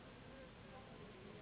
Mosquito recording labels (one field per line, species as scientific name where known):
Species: Anopheles gambiae s.s.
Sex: female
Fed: unfed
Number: one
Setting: insect culture